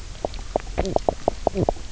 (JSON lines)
{"label": "biophony, knock croak", "recorder": "SoundTrap 300"}